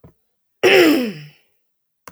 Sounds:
Throat clearing